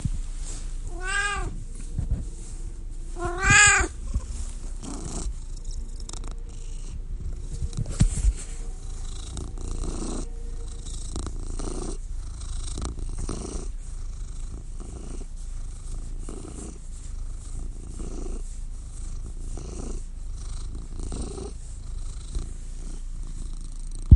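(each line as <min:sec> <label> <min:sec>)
0:00.9 A cat meows loudly nearby. 0:01.7
0:03.1 A cat meows loudly nearby. 0:04.1
0:05.1 A cat is purring loudly nearby. 0:24.2
0:07.7 A microphone is loudly touched to adjust. 0:08.5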